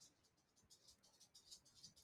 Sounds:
Laughter